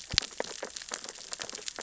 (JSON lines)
{"label": "biophony, sea urchins (Echinidae)", "recorder": "SoundTrap 600 or HydroMoth"}